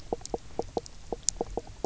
{"label": "biophony, knock croak", "recorder": "SoundTrap 300"}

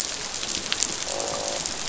{"label": "biophony, croak", "recorder": "SoundTrap 500"}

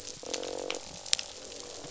{"label": "biophony, croak", "recorder": "SoundTrap 500"}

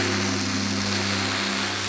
{"label": "anthrophony, boat engine", "recorder": "SoundTrap 500"}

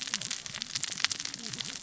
{"label": "biophony, cascading saw", "recorder": "SoundTrap 600 or HydroMoth"}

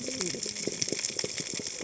{"label": "biophony, cascading saw", "recorder": "HydroMoth"}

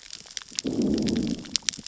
{"label": "biophony, growl", "recorder": "SoundTrap 600 or HydroMoth"}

